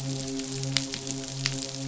{"label": "biophony, midshipman", "recorder": "SoundTrap 500"}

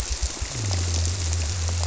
{"label": "biophony", "recorder": "SoundTrap 300"}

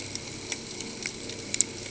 {"label": "ambient", "recorder": "HydroMoth"}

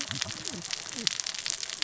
{"label": "biophony, cascading saw", "recorder": "SoundTrap 600 or HydroMoth"}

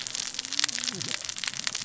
{"label": "biophony, cascading saw", "recorder": "SoundTrap 600 or HydroMoth"}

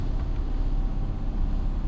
{"label": "anthrophony, boat engine", "recorder": "SoundTrap 300"}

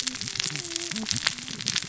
{"label": "biophony, cascading saw", "recorder": "SoundTrap 600 or HydroMoth"}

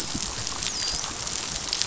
{"label": "biophony, dolphin", "recorder": "SoundTrap 500"}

